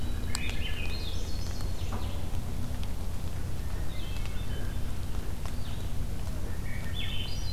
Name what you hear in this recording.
Hermit Thrush, Blue-headed Vireo, Swainson's Thrush, Red-winged Blackbird